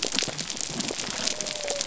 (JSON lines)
{"label": "biophony", "recorder": "SoundTrap 300"}